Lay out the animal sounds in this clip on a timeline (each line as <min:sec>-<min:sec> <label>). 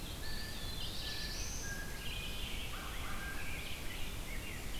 0:00.0-0:04.8 Red-eyed Vireo (Vireo olivaceus)
0:00.1-0:02.1 Blue Jay (Cyanocitta cristata)
0:00.1-0:01.4 Eastern Wood-Pewee (Contopus virens)
0:00.4-0:01.9 Black-throated Blue Warbler (Setophaga caerulescens)
0:02.6-0:04.7 Rose-breasted Grosbeak (Pheucticus ludovicianus)
0:02.6-0:03.6 American Crow (Corvus brachyrhynchos)